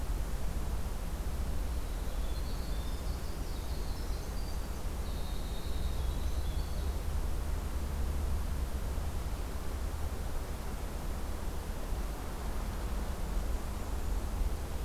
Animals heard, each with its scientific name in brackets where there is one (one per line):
Winter Wren (Troglodytes hiemalis)